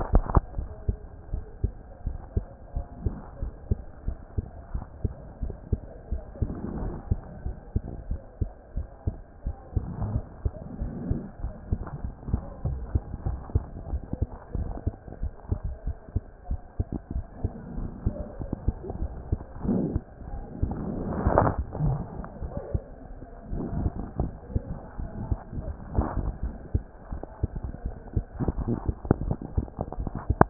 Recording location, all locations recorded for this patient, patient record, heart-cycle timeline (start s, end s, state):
mitral valve (MV)
aortic valve (AV)+pulmonary valve (PV)+tricuspid valve (TV)+mitral valve (MV)
#Age: Child
#Sex: Male
#Height: 133.0 cm
#Weight: 23.3 kg
#Pregnancy status: False
#Murmur: Absent
#Murmur locations: nan
#Most audible location: nan
#Systolic murmur timing: nan
#Systolic murmur shape: nan
#Systolic murmur grading: nan
#Systolic murmur pitch: nan
#Systolic murmur quality: nan
#Diastolic murmur timing: nan
#Diastolic murmur shape: nan
#Diastolic murmur grading: nan
#Diastolic murmur pitch: nan
#Diastolic murmur quality: nan
#Outcome: Normal
#Campaign: 2014 screening campaign
0.00	0.45	unannotated
0.45	0.58	diastole
0.58	0.68	S1
0.68	0.86	systole
0.86	0.96	S2
0.96	1.32	diastole
1.32	1.42	S1
1.42	1.62	systole
1.62	1.72	S2
1.72	2.06	diastole
2.06	2.18	S1
2.18	2.34	systole
2.34	2.44	S2
2.44	2.74	diastole
2.74	2.86	S1
2.86	3.04	systole
3.04	3.14	S2
3.14	3.40	diastole
3.40	3.52	S1
3.52	3.70	systole
3.70	3.80	S2
3.80	4.06	diastole
4.06	4.16	S1
4.16	4.36	systole
4.36	4.46	S2
4.46	4.74	diastole
4.74	4.84	S1
4.84	5.02	systole
5.02	5.12	S2
5.12	5.42	diastole
5.42	5.54	S1
5.54	5.70	systole
5.70	5.80	S2
5.80	6.10	diastole
6.10	6.22	S1
6.22	6.40	systole
6.40	6.50	S2
6.50	6.80	diastole
6.80	6.94	S1
6.94	7.10	systole
7.10	7.20	S2
7.20	7.44	diastole
7.44	7.56	S1
7.56	7.74	systole
7.74	7.82	S2
7.82	8.08	diastole
8.08	8.20	S1
8.20	8.40	systole
8.40	8.50	S2
8.50	8.76	diastole
8.76	8.86	S1
8.86	9.06	systole
9.06	9.16	S2
9.16	9.46	diastole
9.46	9.56	S1
9.56	9.74	systole
9.74	9.84	S2
9.84	10.11	diastole
10.11	10.22	S1
10.22	10.44	systole
10.44	10.52	S2
10.52	10.80	diastole
10.80	10.92	S1
10.92	11.08	systole
11.08	11.20	S2
11.20	11.42	diastole
11.42	11.54	S1
11.54	11.70	systole
11.70	11.80	S2
11.80	12.02	diastole
12.02	12.14	S1
12.14	12.30	systole
12.30	12.40	S2
12.40	12.66	diastole
12.66	12.80	S1
12.80	12.94	systole
12.94	13.04	S2
13.04	13.26	diastole
13.26	13.38	S1
13.38	13.54	systole
13.54	13.64	S2
13.64	13.90	diastole
13.90	14.02	S1
14.02	14.20	systole
14.20	14.31	S2
14.31	14.56	diastole
14.56	14.68	S1
14.68	14.84	systole
14.84	14.94	S2
14.94	15.22	diastole
15.22	30.50	unannotated